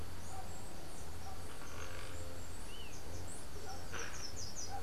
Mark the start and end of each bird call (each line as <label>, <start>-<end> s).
Slate-throated Redstart (Myioborus miniatus), 2.8-4.7 s